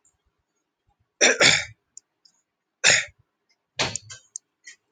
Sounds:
Throat clearing